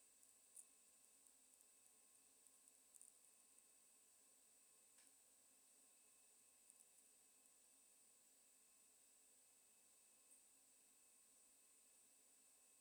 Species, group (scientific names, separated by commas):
Poecilimon macedonicus, Orthoptera